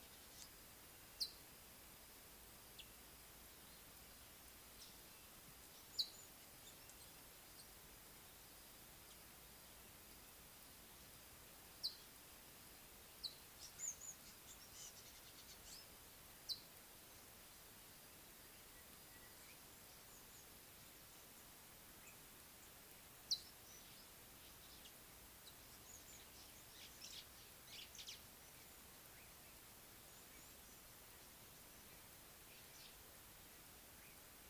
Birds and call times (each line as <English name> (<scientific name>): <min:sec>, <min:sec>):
Scarlet-chested Sunbird (Chalcomitra senegalensis): 0:01.2, 0:06.0
African Gray Flycatcher (Bradornis microrhynchus): 0:13.9
White-browed Sparrow-Weaver (Plocepasser mahali): 0:27.8